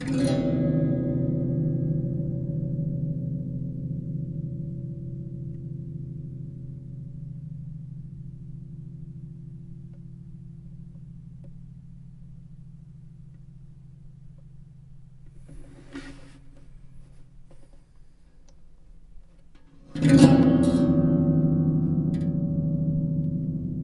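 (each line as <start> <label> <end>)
0.0 A guitar strum echoes with gradually decreasing intensity. 15.5
15.5 A short, repeated friction noise decreases in volume. 17.4
17.4 A short, quiet rattling sound. 17.9
18.4 A quiet click. 18.7
19.3 A loud guitar strum echoes with gradually decreasing intensity. 23.8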